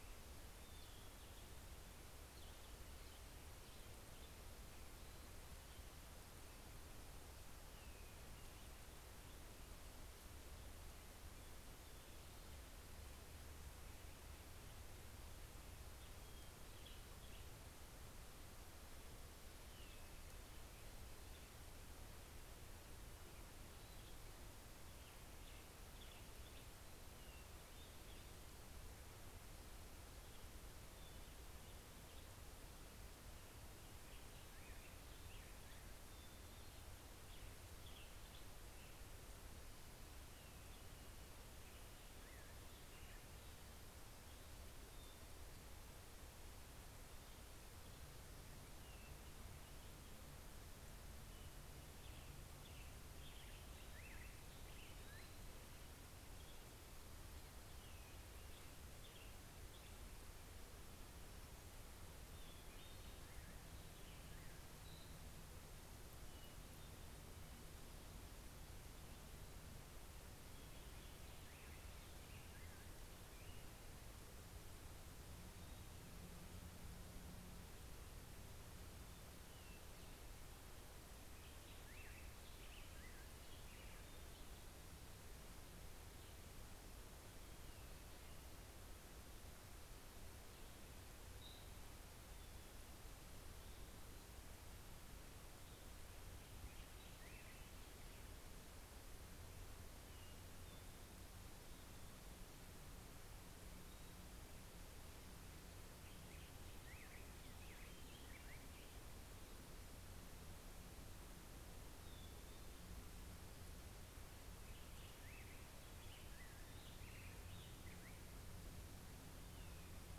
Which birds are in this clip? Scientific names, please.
Catharus guttatus, Piranga ludoviciana, Pheucticus melanocephalus